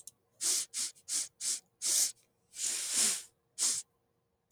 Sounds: Sniff